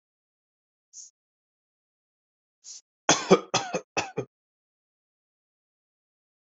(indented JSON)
{
  "expert_labels": [
    {
      "quality": "good",
      "cough_type": "dry",
      "dyspnea": false,
      "wheezing": false,
      "stridor": false,
      "choking": false,
      "congestion": false,
      "nothing": true,
      "diagnosis": "obstructive lung disease",
      "severity": "mild"
    }
  ],
  "age": 23,
  "gender": "female",
  "respiratory_condition": false,
  "fever_muscle_pain": false,
  "status": "symptomatic"
}